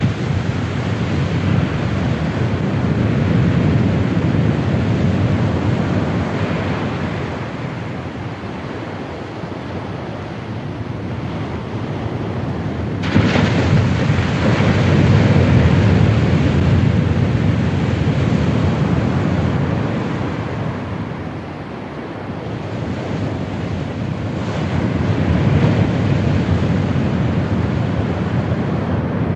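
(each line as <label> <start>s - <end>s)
A high-pressure surge of water bursts forth as dam gates open, accompanied by a high-frequency wind breeze creating a vintage surf vibe. 0.0s - 29.4s
A high-pressure surge of water bursts forth as dam gates open. 0.1s - 7.8s
High-frequency noise of water mixed with air, creating a tense atmosphere. 13.0s - 21.2s
The wind breezes mixed with the sound of water flowing from the dam. 23.9s - 29.4s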